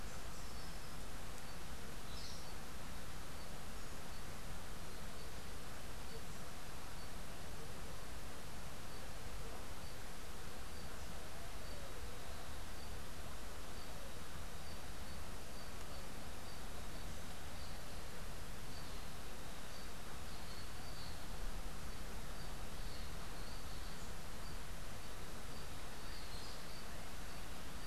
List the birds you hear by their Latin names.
Megarynchus pitangua